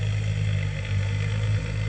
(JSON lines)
{"label": "anthrophony, boat engine", "recorder": "HydroMoth"}